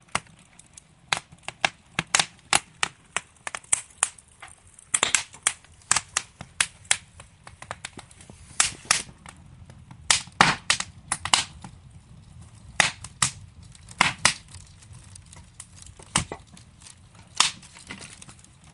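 Fireplace crackling as a fire begins to burn. 0:00.0 - 0:18.7

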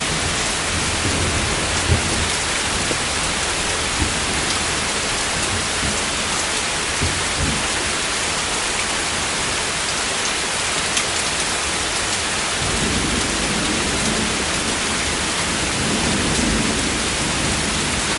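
Heavy rain pouring with raindrops striking the ground. 0:00.1 - 0:18.2
Distant, low rumbles of thunder softly echo as a light thunderstorm approaches. 0:01.8 - 0:08.3
A heavy wind howls through the air with a deep, steady sound. 0:12.9 - 0:14.8
A heavy wind howls through the air with a deep, steady sound. 0:16.2 - 0:18.2

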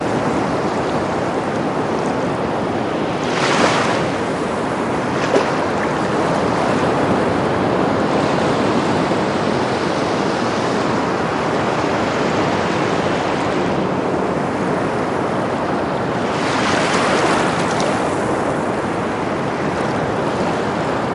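Low-pitched rumbling continues as waves crash onto the shoreline. 0:00.0 - 0:21.1
A single wave softly crashes onto the shore. 0:03.3 - 0:04.2
Soft water splashing as a wave breaks on the seashore. 0:05.0 - 0:05.8
Waves breaking softly at the seashore. 0:16.2 - 0:18.3

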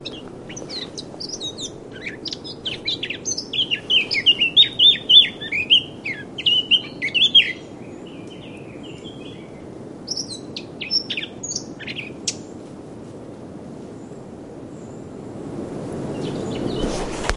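A bird chirps. 0:00.0 - 0:07.6
Multiple birds chirping. 0:07.6 - 0:12.5
Wind is blowing. 0:15.2 - 0:17.2

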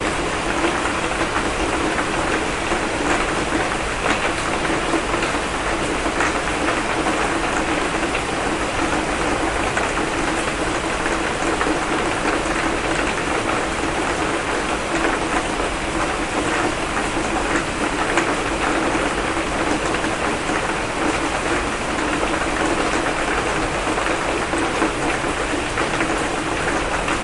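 Continuous subtle background noise. 0:00.0 - 0:27.2
Raindrops splash loudly and continuously. 0:00.0 - 0:27.2

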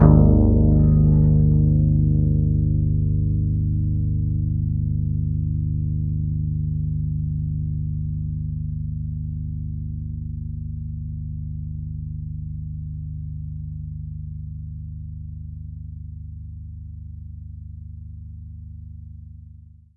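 A sustained low baritone guitar note gradually fades in intensity. 0:00.0 - 0:19.9

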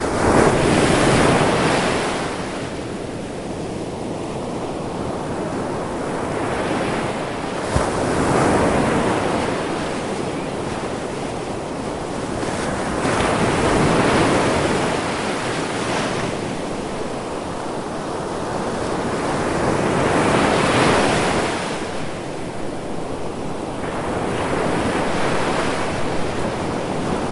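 Strong water splashes near the seashore and wind blows. 0:00.0 - 0:02.4
Wind blowing and water splashing slowly near the seashore. 0:02.5 - 0:07.6
Water splashes strongly near the seashore while the wind blows. 0:07.7 - 0:09.7
Water splashes strongly while the wind blows. 0:12.7 - 0:16.2
Water splashes strongly while the wind blows. 0:18.9 - 0:22.1
Water splashes strongly while the wind blows. 0:23.8 - 0:27.3

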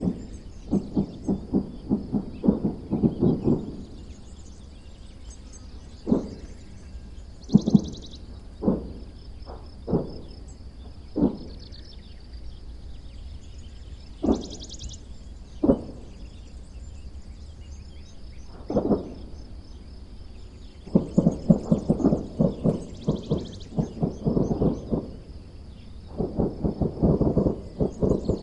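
Muffled gunshots are heard in the far distance with birds chirping. 0:00.0 - 0:28.4

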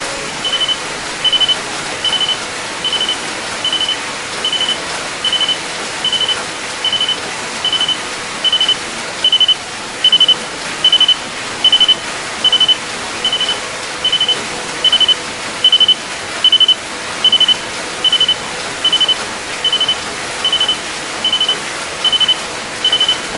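White noise. 0:00.0 - 0:23.4
Subtle rhythmic electronic sounds. 0:00.3 - 0:23.3

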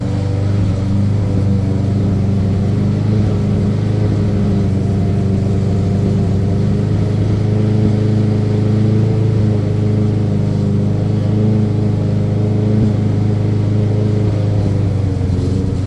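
A lawnmower steadily and continuously rumbles while cutting grass. 0:00.0 - 0:15.9

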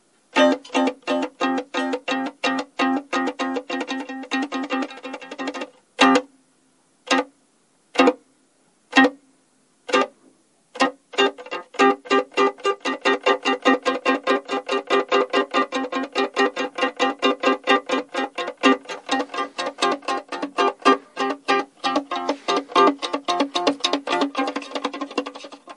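A guitar is played nervously and rapidly, increasing in speed towards the end. 0:00.0 - 0:07.0
A guitar string is plucked once suddenly. 0:07.0 - 0:07.3
A guitar string is plucked once suddenly. 0:07.9 - 0:08.2
A guitar string is plucked once suddenly. 0:08.9 - 0:09.1
A guitar string is plucked once suddenly. 0:09.9 - 0:10.1
A guitar is played rapidly, increasing in speed and then slowing down. 0:10.8 - 0:25.8

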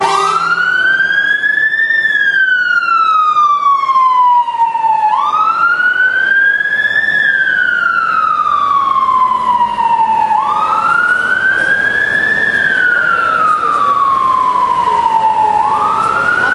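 A police siren blares loudly in a repeating pattern. 0:00.0 - 0:16.5

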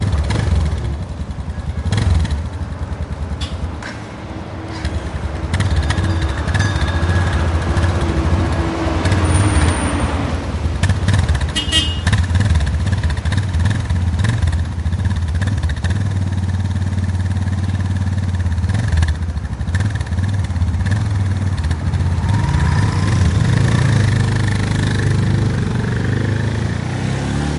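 A vehicle idles in neutral while the engine runs, followed by another vehicle passing by. 0:00.0 - 0:11.3
One vehicle is preparing to leave while several vehicles pass in the background. 0:00.0 - 0:22.0
A vehicle is honking. 0:11.4 - 0:12.0
A vehicle accelerates and drives away. 0:22.1 - 0:27.6

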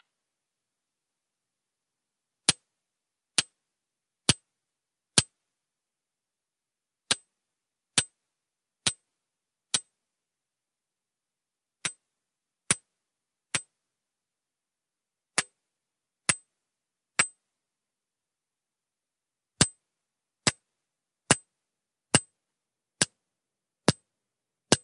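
A muffled metallic clinking sound repeatedly hitting a rock. 0:02.4 - 0:05.4
A muffled metallic clinking sound repeatedly hitting a rock. 0:07.1 - 0:09.9
A muffled metallic clinking sound repeatedly hitting a rock. 0:11.8 - 0:13.7
A muffled metallic clinking sound repeatedly hitting a rock. 0:15.4 - 0:17.5
A muffled metallic clinking sound repeatedly hitting a rock. 0:19.6 - 0:24.8

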